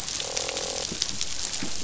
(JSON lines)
{"label": "biophony, croak", "recorder": "SoundTrap 500"}